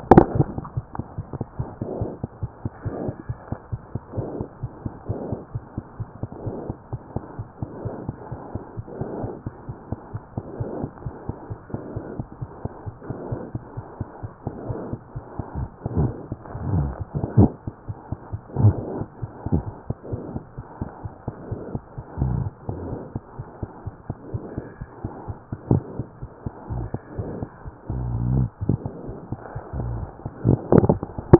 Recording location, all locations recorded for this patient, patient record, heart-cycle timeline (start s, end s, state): aortic valve (AV)
aortic valve (AV)+mitral valve (MV)
#Age: Infant
#Sex: Female
#Height: nan
#Weight: 9.7 kg
#Pregnancy status: False
#Murmur: Absent
#Murmur locations: nan
#Most audible location: nan
#Systolic murmur timing: nan
#Systolic murmur shape: nan
#Systolic murmur grading: nan
#Systolic murmur pitch: nan
#Systolic murmur quality: nan
#Diastolic murmur timing: nan
#Diastolic murmur shape: nan
#Diastolic murmur grading: nan
#Diastolic murmur pitch: nan
#Diastolic murmur quality: nan
#Outcome: Abnormal
#Campaign: 2014 screening campaign
0.00	5.00	unannotated
5.00	5.08	diastole
5.08	5.15	S1
5.15	5.30	systole
5.30	5.37	S2
5.37	5.54	diastole
5.54	5.60	S1
5.60	5.76	systole
5.76	5.82	S2
5.82	5.99	diastole
5.99	6.05	S1
6.05	6.23	systole
6.23	6.28	S2
6.28	6.46	diastole
6.46	6.52	S1
6.52	6.69	systole
6.69	6.74	S2
6.74	6.92	diastole
6.92	6.98	S1
6.98	7.15	systole
7.15	7.20	S2
7.20	7.38	diastole
7.38	7.44	S1
7.44	7.62	systole
7.62	7.66	S2
7.66	7.84	diastole
7.84	31.39	unannotated